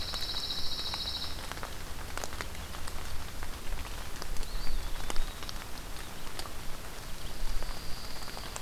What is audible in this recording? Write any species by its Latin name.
Setophaga pinus, Contopus virens